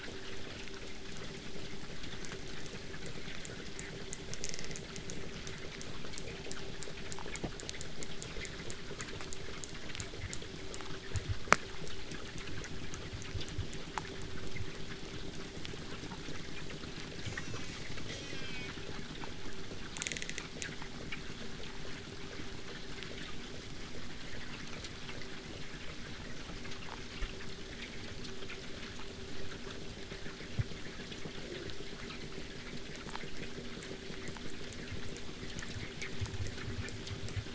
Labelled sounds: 17.2	18.7	killer whale, southern resident, J pod, call S04, 0.46 to 8.0 kHz

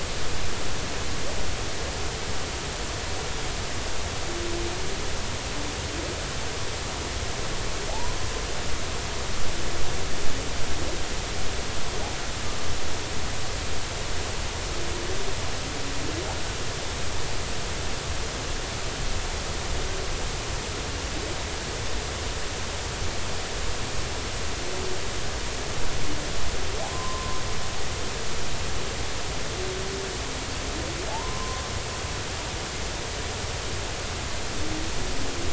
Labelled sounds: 7.9	8.2	humpback whale, 0.80 to 1.1 kHz
26.9	27.4	humpback whale, 0.96 to 1.1 kHz
31.1	31.6	humpback whale, 0.80 to 1.1 kHz

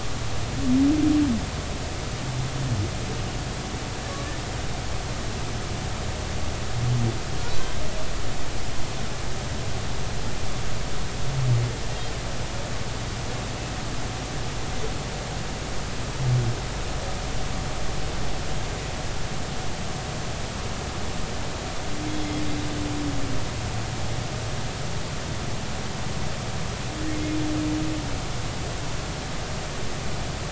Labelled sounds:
7.6	7.8	humpback whale, 1.5 to 1.6 kHz
22.2	22.5	humpback whale, 5.0 to 5.2 kHz

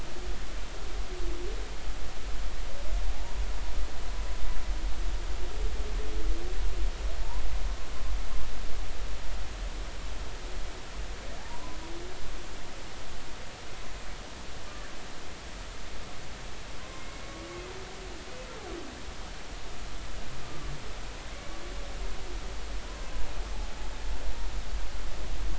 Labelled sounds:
3.1	3.4	humpback whale, 0.80 to 1.1 kHz
11.4	11.8	humpback whale, 0.80 to 1.1 kHz
16.9	17.2	humpback whale, 2.1 to 2.2 kHz
20.4	20.7	humpback whale, 1.1 to 1.2 kHz
21.3	21.6	humpback whale, 2.1 to 2.3 kHz

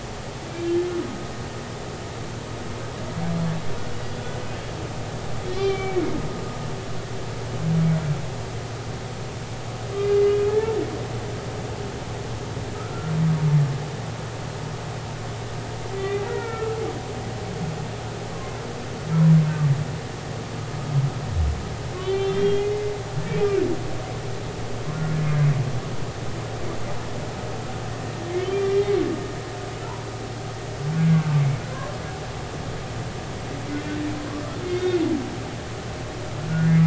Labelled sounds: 5.5	6.0	humpback whale, 2.1 to 4.4 kHz
10.5	10.8	humpback whale, 0.83 to 0.96 kHz
12.7	13.1	humpback whale, 1.2 to 1.5 kHz
15.9	16.8	humpback whale, 1.3 to 2.5 kHz
18.3	18.6	humpback whale, 0.99 to 1.2 kHz
22.0	22.9	humpback whale, 1.9 to 3.6 kHz
23.4	23.6	humpback whale, 2.2 to 2.6 kHz
25.2	25.5	humpback whale, 2.0 to 2.2 kHz
28.4	28.9	humpback whale, 1.9 to 3.2 kHz
31.0	31.4	humpback whale, 1.5 to 1.7 kHz
34.6	35.0	humpback whale, 2.1 to 3.3 kHz
36.6	36.8	humpback whale, 1.6 to 1.7 kHz

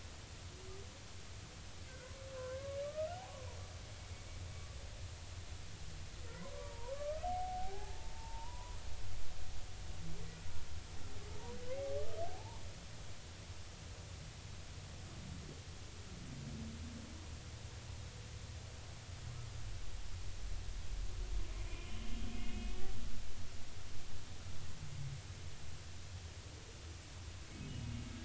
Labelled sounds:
2.3	3.1	humpback whale, 0.99 to 1.7 kHz
6.6	8.8	humpback whale, 0.80 to 1.3 kHz
12.0	12.6	humpback whale, 0.80 to 1.3 kHz
21.7	22.8	humpback whale, 2.4 to 3.3 kHz

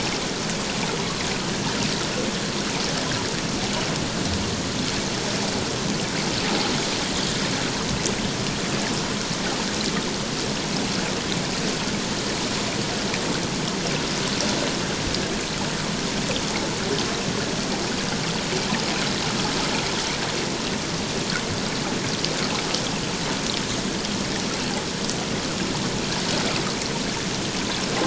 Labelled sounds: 6.4	6.7	water noise, 0.78 to 0.88 kHz

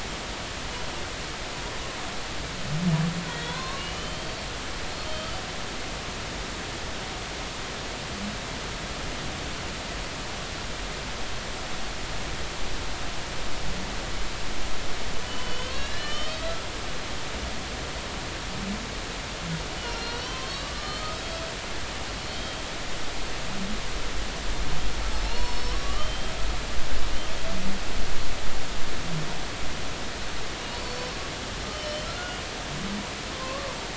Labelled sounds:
3.3	4.3	humpback whale, 0.93 to 4.3 kHz
4.9	5.3	humpback whale, 3.1 to 4.4 kHz
15.2	16.7	humpback whale, 1.2 to 5.2 kHz
19.8	21.1	humpback whale, 0.99 to 4.8 kHz
22.3	22.6	humpback whale, 3.1 to 3.2 kHz
25.2	26.3	humpback whale, 0.86 to 5.5 kHz
30.7	32.4	humpback whale, 1.3 to 4.6 kHz
33.3	33.7	humpback whale, 0.96 to 1.2 kHz

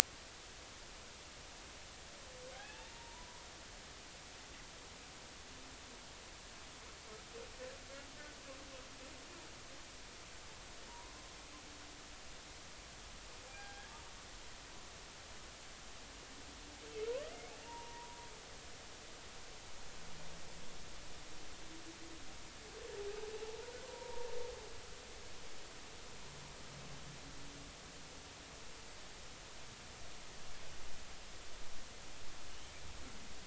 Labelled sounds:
2.5	3.4	humpback whale, 0.80 to 1.1 kHz
10.9	11.1	humpback whale, 0.90 to 1.1 kHz
13.5	13.9	humpback whale, 0.80 to 1.7 kHz
17.2	18.2	humpback whale, 0.86 to 2.3 kHz
23.9	24.3	humpback whale, 0.86 to 0.99 kHz

